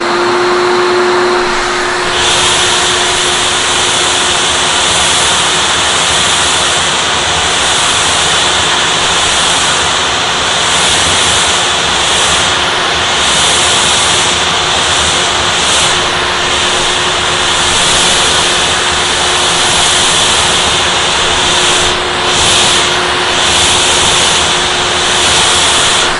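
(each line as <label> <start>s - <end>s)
A loud vacuum cleaner with suction sounds fluctuating unpredictably between strong and weak bursts. 0.0s - 26.2s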